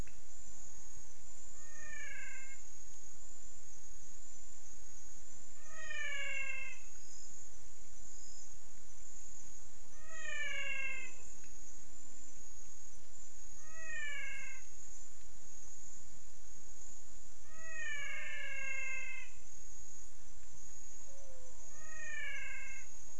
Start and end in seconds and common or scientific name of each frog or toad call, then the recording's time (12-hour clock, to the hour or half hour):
1.3	2.7	menwig frog
5.5	7.2	menwig frog
10.0	11.3	menwig frog
13.4	14.9	menwig frog
17.5	19.5	menwig frog
21.6	22.9	menwig frog
6pm